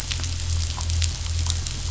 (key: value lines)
label: anthrophony, boat engine
recorder: SoundTrap 500